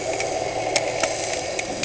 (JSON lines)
{"label": "anthrophony, boat engine", "recorder": "HydroMoth"}